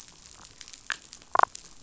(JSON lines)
{"label": "biophony, damselfish", "recorder": "SoundTrap 500"}